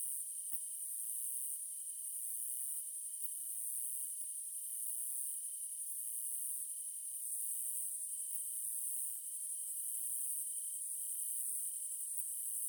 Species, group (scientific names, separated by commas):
Phaneroptera nana, Orthoptera